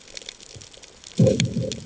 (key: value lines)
label: anthrophony, bomb
recorder: HydroMoth